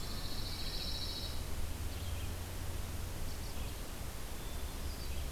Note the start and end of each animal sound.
[0.00, 0.54] Eastern Wood-Pewee (Contopus virens)
[0.00, 1.81] Pine Warbler (Setophaga pinus)
[0.00, 5.31] Red-eyed Vireo (Vireo olivaceus)

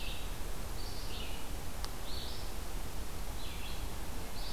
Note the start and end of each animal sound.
[0.00, 4.53] Red-eyed Vireo (Vireo olivaceus)

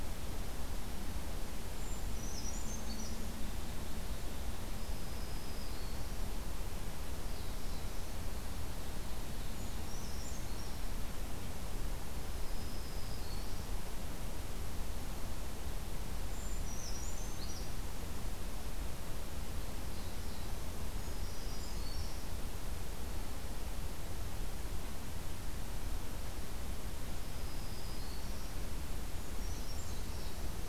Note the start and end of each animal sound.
[1.66, 3.22] Brown Creeper (Certhia americana)
[4.62, 6.36] Black-throated Green Warbler (Setophaga virens)
[6.94, 8.40] Black-throated Blue Warbler (Setophaga caerulescens)
[9.37, 10.80] Brown Creeper (Certhia americana)
[12.25, 13.76] Black-throated Green Warbler (Setophaga virens)
[16.21, 17.79] Brown Creeper (Certhia americana)
[19.47, 20.81] Black-throated Blue Warbler (Setophaga caerulescens)
[20.84, 22.29] Brown Creeper (Certhia americana)
[27.05, 28.67] Black-throated Green Warbler (Setophaga virens)
[29.07, 30.33] Brown Creeper (Certhia americana)

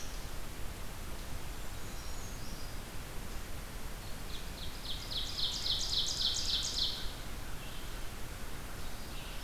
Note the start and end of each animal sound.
[1.26, 2.30] Eastern Wood-Pewee (Contopus virens)
[1.43, 2.79] Brown Creeper (Certhia americana)
[3.82, 7.23] Ovenbird (Seiurus aurocapilla)
[6.10, 9.43] American Crow (Corvus brachyrhynchos)
[7.48, 9.43] Red-eyed Vireo (Vireo olivaceus)

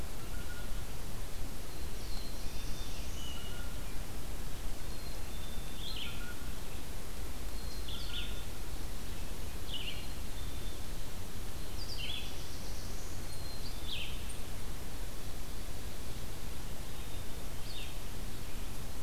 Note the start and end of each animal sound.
[0.00, 0.87] Blue Jay (Cyanocitta cristata)
[0.00, 19.03] Red-eyed Vireo (Vireo olivaceus)
[1.40, 3.42] Black-throated Blue Warbler (Setophaga caerulescens)
[3.12, 3.76] Hermit Thrush (Catharus guttatus)
[4.70, 5.80] Black-capped Chickadee (Poecile atricapillus)
[5.98, 8.40] Blue Jay (Cyanocitta cristata)
[7.42, 8.63] Black-capped Chickadee (Poecile atricapillus)
[9.50, 10.93] Black-capped Chickadee (Poecile atricapillus)
[11.53, 13.49] Black-throated Blue Warbler (Setophaga caerulescens)
[13.14, 14.04] Black-capped Chickadee (Poecile atricapillus)
[13.20, 14.45] Eastern Chipmunk (Tamias striatus)
[16.87, 17.98] Black-capped Chickadee (Poecile atricapillus)

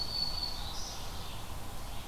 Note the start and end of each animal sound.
[0.00, 1.32] Black-throated Green Warbler (Setophaga virens)
[0.00, 2.08] Ovenbird (Seiurus aurocapilla)
[0.00, 2.08] Red-eyed Vireo (Vireo olivaceus)

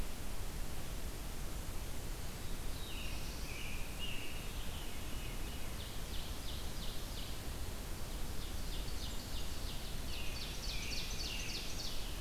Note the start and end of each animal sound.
[2.08, 3.98] Black-throated Blue Warbler (Setophaga caerulescens)
[2.60, 4.93] American Robin (Turdus migratorius)
[4.33, 5.78] Veery (Catharus fuscescens)
[5.15, 7.55] Ovenbird (Seiurus aurocapilla)
[7.87, 12.04] Ovenbird (Seiurus aurocapilla)
[9.75, 12.20] American Robin (Turdus migratorius)

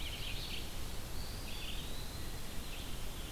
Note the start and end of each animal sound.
[0.00, 3.32] Red-eyed Vireo (Vireo olivaceus)
[1.02, 2.40] Eastern Wood-Pewee (Contopus virens)

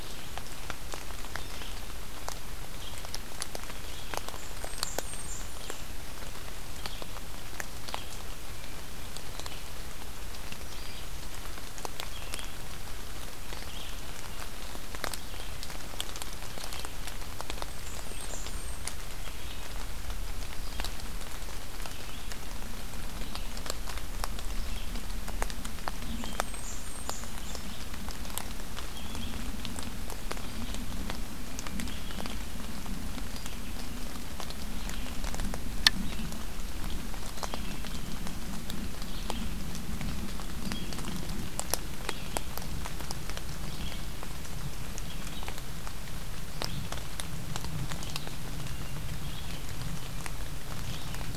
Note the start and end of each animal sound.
[0.00, 51.37] Red-eyed Vireo (Vireo olivaceus)
[4.19, 6.09] Blackburnian Warbler (Setophaga fusca)
[17.32, 19.05] Blackburnian Warbler (Setophaga fusca)
[26.01, 27.75] Blackburnian Warbler (Setophaga fusca)

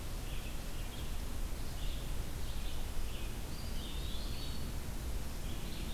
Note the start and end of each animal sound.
[0.00, 5.93] Red-eyed Vireo (Vireo olivaceus)
[3.42, 4.75] Eastern Wood-Pewee (Contopus virens)

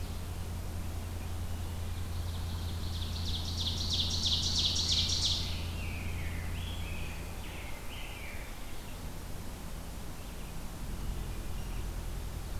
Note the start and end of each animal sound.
[1.89, 5.70] Ovenbird (Seiurus aurocapilla)
[4.56, 8.73] Rose-breasted Grosbeak (Pheucticus ludovicianus)
[10.87, 11.70] Wood Thrush (Hylocichla mustelina)

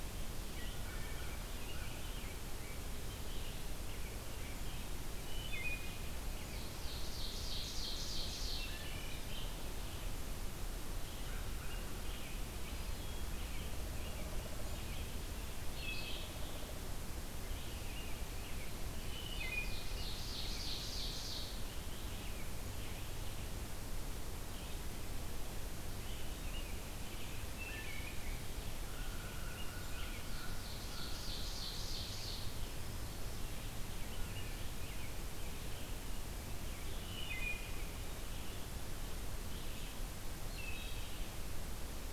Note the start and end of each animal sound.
[0.47, 42.12] Red-eyed Vireo (Vireo olivaceus)
[0.85, 1.37] Wood Thrush (Hylocichla mustelina)
[0.87, 2.13] American Crow (Corvus brachyrhynchos)
[5.24, 6.09] Wood Thrush (Hylocichla mustelina)
[6.26, 8.70] Ovenbird (Seiurus aurocapilla)
[8.55, 9.15] Wood Thrush (Hylocichla mustelina)
[11.26, 11.96] American Crow (Corvus brachyrhynchos)
[15.64, 16.37] Wood Thrush (Hylocichla mustelina)
[18.89, 19.87] Wood Thrush (Hylocichla mustelina)
[19.18, 21.71] Ovenbird (Seiurus aurocapilla)
[27.55, 28.20] Wood Thrush (Hylocichla mustelina)
[28.90, 31.36] American Crow (Corvus brachyrhynchos)
[29.93, 32.64] Ovenbird (Seiurus aurocapilla)
[33.99, 34.75] Wood Thrush (Hylocichla mustelina)
[37.00, 37.72] Wood Thrush (Hylocichla mustelina)
[40.48, 41.21] Wood Thrush (Hylocichla mustelina)

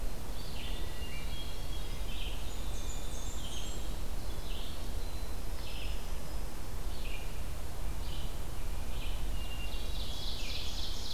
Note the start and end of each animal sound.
[0.00, 11.13] Red-eyed Vireo (Vireo olivaceus)
[0.68, 2.13] Hermit Thrush (Catharus guttatus)
[2.17, 6.93] Winter Wren (Troglodytes hiemalis)
[2.36, 3.92] Blackburnian Warbler (Setophaga fusca)
[9.23, 11.13] Ovenbird (Seiurus aurocapilla)
[9.24, 10.69] Hermit Thrush (Catharus guttatus)

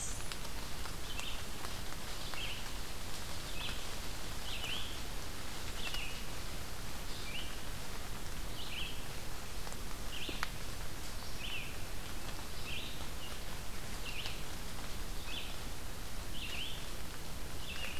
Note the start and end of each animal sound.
[0.00, 0.63] Blackburnian Warbler (Setophaga fusca)
[0.00, 18.00] Red-eyed Vireo (Vireo olivaceus)

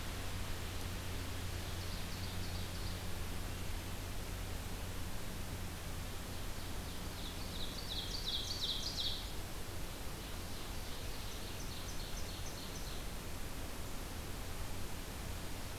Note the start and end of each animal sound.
[1.56, 3.08] Ovenbird (Seiurus aurocapilla)
[5.80, 9.38] Ovenbird (Seiurus aurocapilla)
[10.29, 13.12] Ovenbird (Seiurus aurocapilla)

